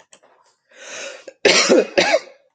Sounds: Cough